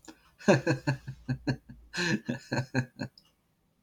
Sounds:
Laughter